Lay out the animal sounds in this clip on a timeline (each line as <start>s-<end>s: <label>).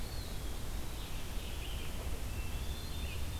0.0s-0.8s: Eastern Wood-Pewee (Contopus virens)
0.0s-3.4s: Red-eyed Vireo (Vireo olivaceus)
2.3s-3.4s: Winter Wren (Troglodytes hiemalis)